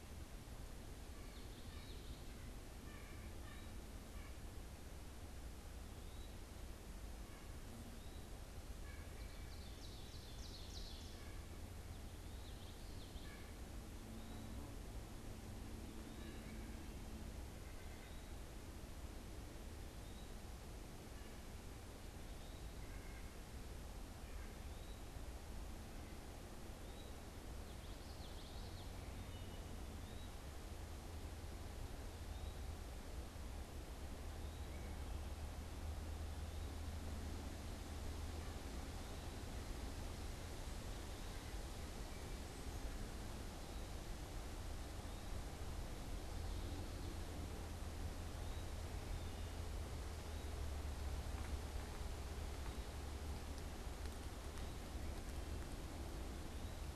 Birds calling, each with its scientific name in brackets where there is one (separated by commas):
unidentified bird, Ovenbird (Seiurus aurocapilla), Common Yellowthroat (Geothlypis trichas), Wood Thrush (Hylocichla mustelina), White-breasted Nuthatch (Sitta carolinensis), Eastern Wood-Pewee (Contopus virens)